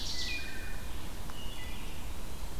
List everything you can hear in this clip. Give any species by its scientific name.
Seiurus aurocapilla, Hylocichla mustelina, Vireo olivaceus, Contopus virens